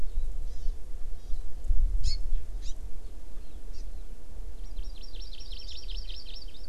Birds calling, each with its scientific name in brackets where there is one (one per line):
Hawaii Amakihi (Chlorodrepanis virens)